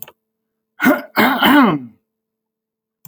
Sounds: Throat clearing